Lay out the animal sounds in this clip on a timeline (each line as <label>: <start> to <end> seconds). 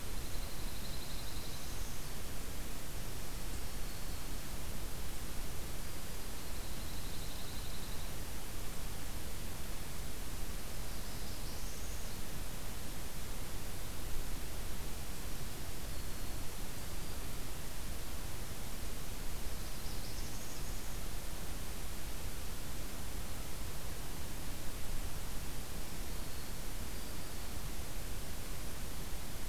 Dark-eyed Junco (Junco hyemalis): 0.0 to 1.9 seconds
Northern Parula (Setophaga americana): 1.2 to 2.2 seconds
Black-throated Green Warbler (Setophaga virens): 3.1 to 4.5 seconds
Black-throated Green Warbler (Setophaga virens): 5.8 to 6.4 seconds
Dark-eyed Junco (Junco hyemalis): 6.3 to 8.1 seconds
Northern Parula (Setophaga americana): 10.6 to 12.2 seconds
Black-throated Green Warbler (Setophaga virens): 15.7 to 17.4 seconds
Northern Parula (Setophaga americana): 19.5 to 20.9 seconds
Black-throated Green Warbler (Setophaga virens): 25.9 to 27.5 seconds